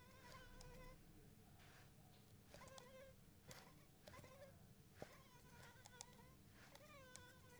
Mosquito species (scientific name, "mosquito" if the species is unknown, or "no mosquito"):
Anopheles arabiensis